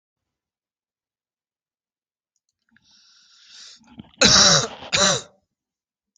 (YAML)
expert_labels:
- quality: good
  cough_type: dry
  dyspnea: false
  wheezing: false
  stridor: false
  choking: false
  congestion: false
  nothing: true
  diagnosis: healthy cough
  severity: pseudocough/healthy cough
age: 21
gender: male
respiratory_condition: false
fever_muscle_pain: false
status: healthy